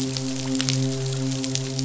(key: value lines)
label: biophony, midshipman
recorder: SoundTrap 500